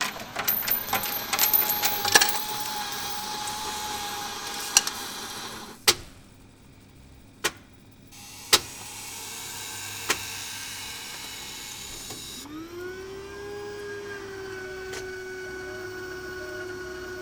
Are their multiple objects being dropped?
yes